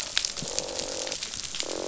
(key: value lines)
label: biophony, croak
recorder: SoundTrap 500